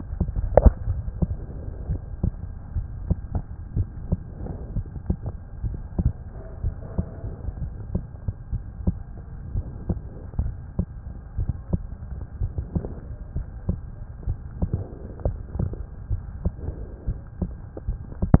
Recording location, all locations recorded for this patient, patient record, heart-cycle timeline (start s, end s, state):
aortic valve (AV)
aortic valve (AV)+pulmonary valve (PV)+tricuspid valve (TV)+mitral valve (MV)
#Age: Child
#Sex: Male
#Height: 141.0 cm
#Weight: 39.8 kg
#Pregnancy status: False
#Murmur: Absent
#Murmur locations: nan
#Most audible location: nan
#Systolic murmur timing: nan
#Systolic murmur shape: nan
#Systolic murmur grading: nan
#Systolic murmur pitch: nan
#Systolic murmur quality: nan
#Diastolic murmur timing: nan
#Diastolic murmur shape: nan
#Diastolic murmur grading: nan
#Diastolic murmur pitch: nan
#Diastolic murmur quality: nan
#Outcome: Normal
#Campaign: 2015 screening campaign
0.00	8.49	unannotated
8.49	8.62	S1
8.62	8.84	systole
8.84	8.96	S2
8.96	9.51	diastole
9.51	9.66	S1
9.66	9.85	systole
9.85	10.00	S2
10.00	10.35	diastole
10.35	10.48	S1
10.48	10.75	systole
10.75	10.86	S2
10.86	11.36	diastole
11.36	11.52	S1
11.52	11.70	systole
11.70	11.82	S2
11.82	12.38	diastole
12.38	12.54	S1
12.54	12.72	systole
12.72	12.84	S2
12.84	13.32	diastole
13.32	13.46	S1
13.46	13.64	systole
13.64	13.80	S2
13.80	14.23	diastole
14.23	14.40	S1
14.40	14.58	systole
14.58	14.72	S2
14.72	15.23	diastole
15.23	15.36	S1
15.36	15.56	systole
15.56	15.72	S2
15.72	16.06	diastole
16.06	16.22	S1
16.22	16.40	systole
16.40	16.54	S2
16.54	17.03	diastole
17.03	17.18	S1
17.18	17.37	systole
17.37	17.52	S2
17.52	17.83	diastole
17.83	18.00	S1
18.00	18.40	unannotated